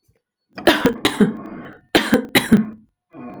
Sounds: Cough